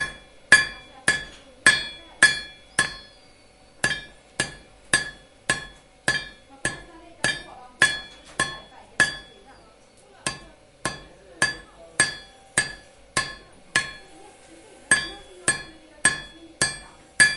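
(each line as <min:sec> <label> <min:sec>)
0:00.0 A person repeatedly hammers a metallic object nearby. 0:09.4
0:10.2 A person repeatedly hammers a metallic object nearby. 0:14.0
0:14.8 A person repeatedly hammers a metallic object nearby. 0:17.4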